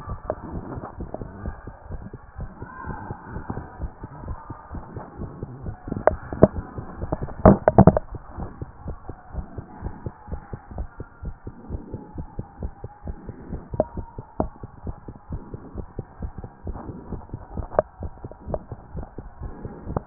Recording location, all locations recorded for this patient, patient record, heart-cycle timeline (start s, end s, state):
tricuspid valve (TV)
aortic valve (AV)+pulmonary valve (PV)+tricuspid valve (TV)+mitral valve (MV)
#Age: Child
#Sex: Male
#Height: 127.0 cm
#Weight: 36.3 kg
#Pregnancy status: False
#Murmur: Absent
#Murmur locations: nan
#Most audible location: nan
#Systolic murmur timing: nan
#Systolic murmur shape: nan
#Systolic murmur grading: nan
#Systolic murmur pitch: nan
#Systolic murmur quality: nan
#Diastolic murmur timing: nan
#Diastolic murmur shape: nan
#Diastolic murmur grading: nan
#Diastolic murmur pitch: nan
#Diastolic murmur quality: nan
#Outcome: Abnormal
#Campaign: 2014 screening campaign
0.00	8.20	unannotated
8.20	8.38	diastole
8.38	8.50	S1
8.50	8.60	systole
8.60	8.68	S2
8.68	8.86	diastole
8.86	8.96	S1
8.96	9.08	systole
9.08	9.16	S2
9.16	9.34	diastole
9.34	9.46	S1
9.46	9.56	systole
9.56	9.64	S2
9.64	9.82	diastole
9.82	9.94	S1
9.94	10.04	systole
10.04	10.12	S2
10.12	10.30	diastole
10.30	10.40	S1
10.40	10.52	systole
10.52	10.60	S2
10.60	10.76	diastole
10.76	10.88	S1
10.88	10.98	systole
10.98	11.06	S2
11.06	11.24	diastole
11.24	11.34	S1
11.34	11.46	systole
11.46	11.52	S2
11.52	11.70	diastole
11.70	11.82	S1
11.82	11.92	systole
11.92	12.02	S2
12.02	12.16	diastole
12.16	12.26	S1
12.26	12.36	systole
12.36	12.46	S2
12.46	12.60	diastole
12.60	12.72	S1
12.72	12.82	systole
12.82	12.90	S2
12.90	13.06	diastole
13.06	13.16	S1
13.16	13.26	systole
13.26	13.36	S2
13.36	13.50	diastole
13.50	13.62	S1
13.62	13.74	systole
13.74	13.86	S2
13.86	13.96	diastole
13.96	14.06	S1
14.06	14.16	systole
14.16	14.22	S2
14.22	14.40	diastole
14.40	14.50	S1
14.50	14.62	systole
14.62	14.68	S2
14.68	14.86	diastole
14.86	14.96	S1
14.96	15.06	systole
15.06	15.14	S2
15.14	15.30	diastole
15.30	15.42	S1
15.42	15.52	systole
15.52	15.60	S2
15.60	15.76	diastole
15.76	15.86	S1
15.86	15.96	systole
15.96	16.06	S2
16.06	16.20	diastole
16.20	16.32	S1
16.32	16.40	systole
16.40	16.48	S2
16.48	16.66	diastole
16.66	16.78	S1
16.78	16.86	systole
16.86	16.96	S2
16.96	17.10	diastole
17.10	17.22	S1
17.22	17.32	systole
17.32	17.40	S2
17.40	17.54	diastole
17.54	17.66	S1
17.66	17.76	systole
17.76	17.84	S2
17.84	18.02	diastole
18.02	18.12	S1
18.12	18.22	systole
18.22	18.30	S2
18.30	18.48	diastole
18.48	18.60	S1
18.60	18.70	systole
18.70	18.78	S2
18.78	18.96	diastole
18.96	19.06	S1
19.06	19.18	systole
19.18	19.28	S2
19.28	19.42	diastole
19.42	19.52	S1
19.52	19.62	systole
19.62	19.72	S2
19.72	19.88	diastole
19.88	20.06	unannotated